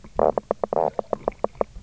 {"label": "biophony, knock croak", "recorder": "SoundTrap 300"}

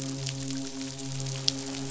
{"label": "biophony, midshipman", "recorder": "SoundTrap 500"}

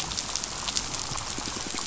{"label": "biophony", "recorder": "SoundTrap 500"}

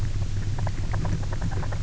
{"label": "biophony, grazing", "recorder": "SoundTrap 300"}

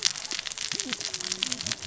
{"label": "biophony, cascading saw", "recorder": "SoundTrap 600 or HydroMoth"}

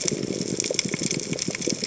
{"label": "biophony, chatter", "recorder": "HydroMoth"}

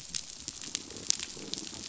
{"label": "biophony", "recorder": "SoundTrap 500"}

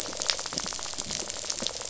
{"label": "biophony", "recorder": "SoundTrap 500"}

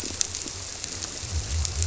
{"label": "biophony", "recorder": "SoundTrap 300"}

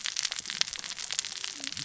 {"label": "biophony, cascading saw", "recorder": "SoundTrap 600 or HydroMoth"}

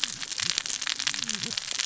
{"label": "biophony, cascading saw", "recorder": "SoundTrap 600 or HydroMoth"}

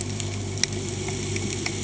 {"label": "anthrophony, boat engine", "recorder": "HydroMoth"}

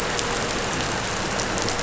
{"label": "anthrophony, boat engine", "recorder": "SoundTrap 500"}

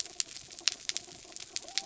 {"label": "biophony", "recorder": "SoundTrap 300"}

